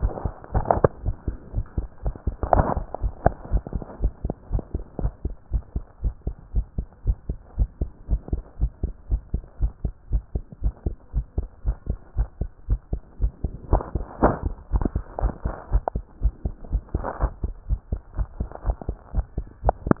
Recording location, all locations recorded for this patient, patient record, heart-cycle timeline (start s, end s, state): pulmonary valve (PV)
aortic valve (AV)+pulmonary valve (PV)+tricuspid valve (TV)+mitral valve (MV)
#Age: Child
#Sex: Female
#Height: 146.0 cm
#Weight: 35.1 kg
#Pregnancy status: False
#Murmur: Absent
#Murmur locations: nan
#Most audible location: nan
#Systolic murmur timing: nan
#Systolic murmur shape: nan
#Systolic murmur grading: nan
#Systolic murmur pitch: nan
#Systolic murmur quality: nan
#Diastolic murmur timing: nan
#Diastolic murmur shape: nan
#Diastolic murmur grading: nan
#Diastolic murmur pitch: nan
#Diastolic murmur quality: nan
#Outcome: Normal
#Campaign: 2015 screening campaign
0.00	5.24	unannotated
5.24	5.36	S2
5.36	5.49	diastole
5.49	5.62	S1
5.62	5.74	systole
5.74	5.86	S2
5.86	6.02	diastole
6.02	6.14	S1
6.14	6.26	systole
6.26	6.36	S2
6.36	6.54	diastole
6.54	6.66	S1
6.66	6.76	systole
6.76	6.86	S2
6.86	7.02	diastole
7.02	7.16	S1
7.16	7.28	systole
7.28	7.40	S2
7.40	7.58	diastole
7.58	7.68	S1
7.68	7.80	systole
7.80	7.92	S2
7.92	8.10	diastole
8.10	8.22	S1
8.22	8.32	systole
8.32	8.44	S2
8.44	8.60	diastole
8.60	8.72	S1
8.72	8.82	systole
8.82	8.94	S2
8.94	9.10	diastole
9.10	9.24	S1
9.24	9.32	systole
9.32	9.42	S2
9.42	9.60	diastole
9.60	9.72	S1
9.72	9.82	systole
9.82	9.94	S2
9.94	10.12	diastole
10.12	10.22	S1
10.22	10.34	systole
10.34	10.44	S2
10.44	10.62	diastole
10.62	10.74	S1
10.74	10.84	systole
10.84	10.96	S2
10.96	11.14	diastole
11.14	11.26	S1
11.26	11.38	systole
11.38	11.50	S2
11.50	11.66	diastole
11.66	11.76	S1
11.76	11.90	systole
11.90	12.00	S2
12.00	12.16	diastole
12.16	12.28	S1
12.28	12.40	systole
12.40	12.52	S2
12.52	12.68	diastole
12.68	12.80	S1
12.80	12.92	systole
12.92	13.02	S2
13.02	13.20	diastole
13.20	13.32	S1
13.32	13.42	systole
13.42	13.52	S2
13.52	13.66	diastole
13.66	20.00	unannotated